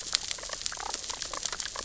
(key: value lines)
label: biophony, damselfish
recorder: SoundTrap 600 or HydroMoth